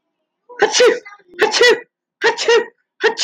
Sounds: Sneeze